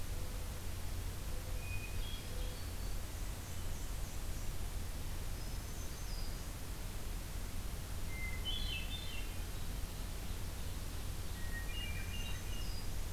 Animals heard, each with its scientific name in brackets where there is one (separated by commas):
Ovenbird (Seiurus aurocapilla), Black-and-white Warbler (Mniotilta varia), Hermit Thrush (Catharus guttatus), Black-throated Green Warbler (Setophaga virens)